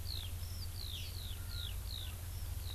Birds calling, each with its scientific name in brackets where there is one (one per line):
Eurasian Skylark (Alauda arvensis)